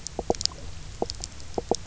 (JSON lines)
{"label": "biophony, knock croak", "recorder": "SoundTrap 300"}